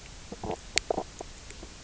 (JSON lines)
{"label": "biophony, knock croak", "recorder": "SoundTrap 300"}